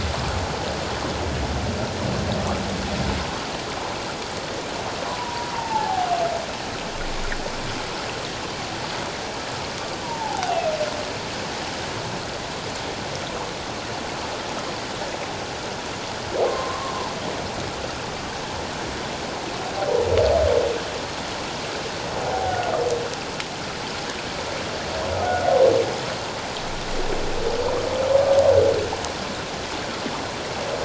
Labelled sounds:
5.1	6.1	humpback whale, 0.78 to 1.1 kHz
10.0	10.8	humpback whale, 0.78 to 2.8 kHz
16.4	16.9	humpback whale, 1.0 to 1.2 kHz
22.3	22.7	humpback whale, 0.78 to 1.6 kHz
25.2	25.5	humpback whale, 1.4 to 1.5 kHz

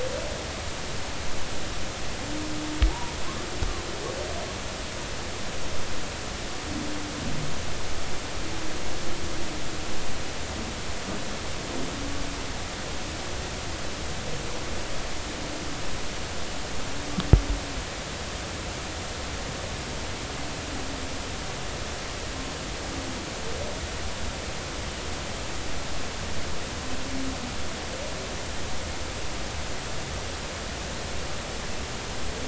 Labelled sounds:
2.9	3.1	humpback whale, 0.80 to 1.0 kHz

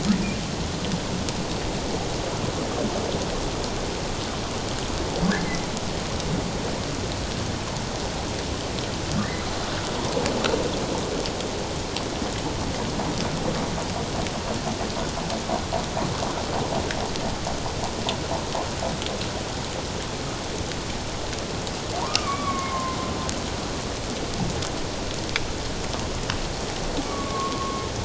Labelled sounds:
22.0	23.0	humpback whale, 0.91 to 2.4 kHz
27.1	27.8	humpback whale, 1.0 to 1.3 kHz

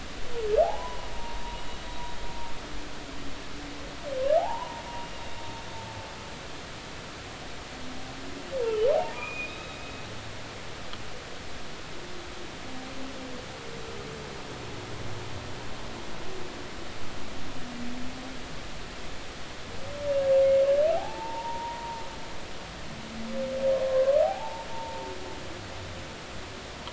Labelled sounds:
0.6	1.4	humpback whale, 0.80 to 1.1 kHz
4.4	5.1	humpback whale, 0.80 to 2.9 kHz
8.9	9.8	humpback whale, 0.80 to 3.9 kHz
20.9	22.0	humpback whale, 0.80 to 1.0 kHz
23.9	25.0	humpback whale, 0.80 to 1.3 kHz

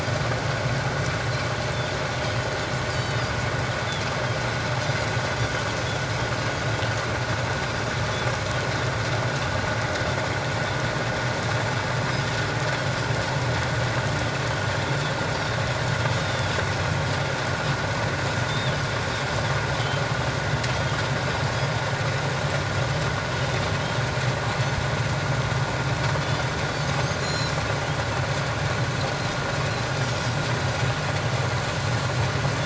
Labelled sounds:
2.9	3.3	Pacific white-sided dolphin, 2.9 to 4.7 kHz
14.9	15.1	Pacific white-sided dolphin, 3.4 to 3.7 kHz
16.2	16.5	Pacific white-sided dolphin, 3.2 to 3.8 kHz
18.3	18.8	Pacific white-sided dolphin, 3.3 to 7.9 kHz
26.2	27.5	Pacific white-sided dolphin, 3.3 to 7.0 kHz

